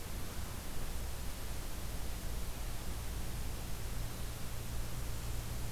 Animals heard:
forest ambience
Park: Acadia National Park